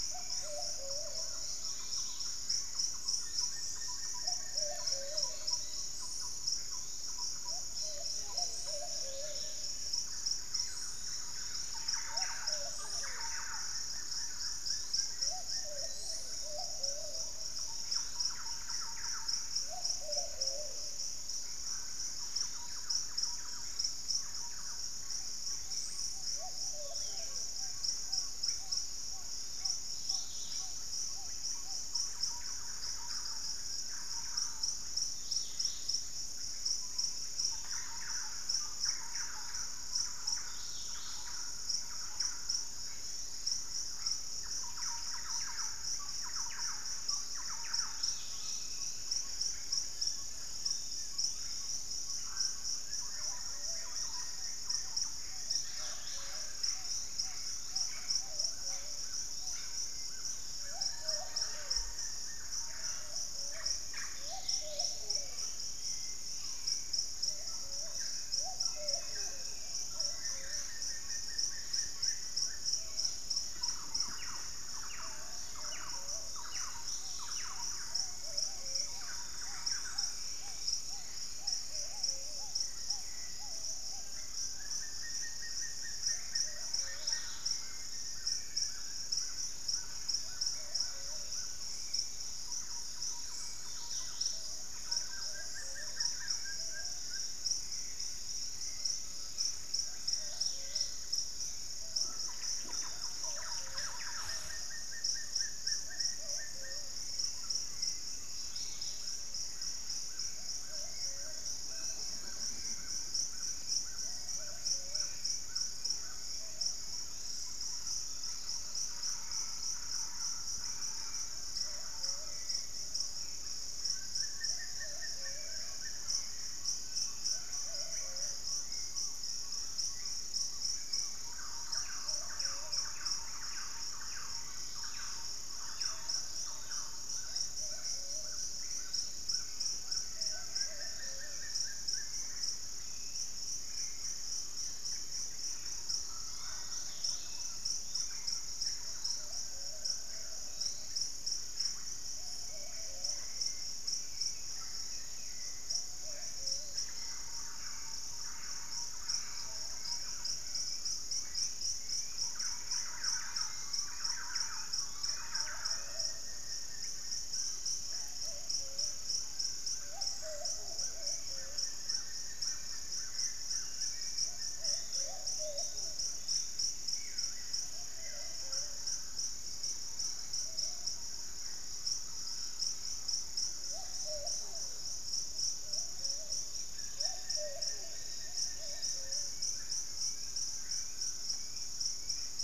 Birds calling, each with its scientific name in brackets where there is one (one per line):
Black-capped Becard (Pachyramphus marginatus)
Buff-throated Woodcreeper (Xiphorhynchus guttatus)
Thrush-like Wren (Campylorhynchus turdinus)
Russet-backed Oropendola (Psarocolius angustifrons)
unidentified bird
Golden-crowned Spadebill (Platyrinchus coronatus)
Grayish Mourner (Rhytipterna simplex)
Forest Elaenia (Myiopagis gaimardii)
Black-tailed Trogon (Trogon melanurus)
Buff-breasted Wren (Cantorchilus leucotis)
Collared Trogon (Trogon collaris)
Undulated Tinamou (Crypturellus undulatus)
Cobalt-winged Parakeet (Brotogeris cyanoptera)
Gray Antwren (Myrmotherula menetriesii)
Ringed Woodpecker (Celeus torquatus)
Hauxwell's Thrush (Turdus hauxwelli)
Yellow-margined Flycatcher (Tolmomyias assimilis)
Wing-barred Piprites (Piprites chloris)
Plumbeous Pigeon (Patagioenas plumbea)
Pygmy Antwren (Myrmotherula brachyura)
Dusky-capped Greenlet (Pachysylvia hypoxantha)
White-lored Tyrannulet (Ornithion inerme)